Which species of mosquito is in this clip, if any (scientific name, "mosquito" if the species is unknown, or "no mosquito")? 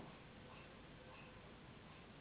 Anopheles gambiae s.s.